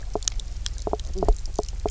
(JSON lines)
{"label": "biophony, knock croak", "recorder": "SoundTrap 300"}